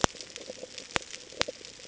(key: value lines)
label: ambient
recorder: HydroMoth